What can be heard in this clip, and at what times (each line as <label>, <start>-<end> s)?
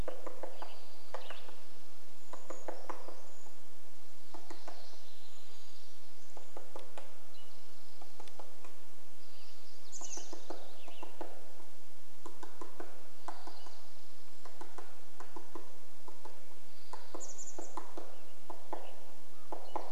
Western Tanager song, 0-2 s
unidentified sound, 0-2 s
woodpecker drumming, 0-20 s
Brown Creeper song, 2-4 s
unidentified sound, 4-6 s
Spotted Towhee song, 6-8 s
Townsend's Solitaire call, 6-8 s
unidentified sound, 8-10 s
Western Tanager song, 8-12 s
Chestnut-backed Chickadee call, 10-12 s
Spotted Towhee song, 12-14 s
Townsend's Solitaire call, 12-14 s
unidentified sound, 12-14 s
Chestnut-backed Chickadee call, 16-18 s
unidentified sound, 16-18 s
Common Raven call, 18-20 s
Spotted Towhee song, 18-20 s
Townsend's Solitaire call, 18-20 s
Western Tanager song, 18-20 s